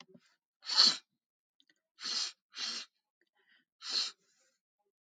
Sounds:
Sniff